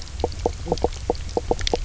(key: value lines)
label: biophony, knock croak
recorder: SoundTrap 300